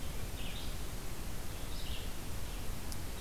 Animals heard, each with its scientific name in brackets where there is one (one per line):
Red-eyed Vireo (Vireo olivaceus)